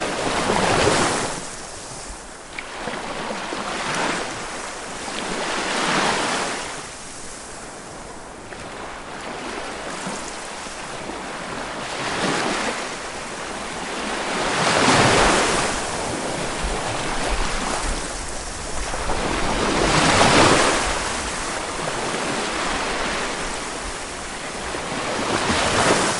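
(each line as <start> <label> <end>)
0.0 Waves in the Baltic Sea sound soft and ambient with repeated irregular weak crescendos. 13.0
13.0 Waves in the Baltic Sea sound loud and ambient with repeated irregular crescendos. 26.2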